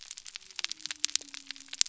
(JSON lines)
{"label": "biophony", "recorder": "SoundTrap 300"}